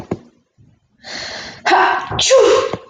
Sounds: Sneeze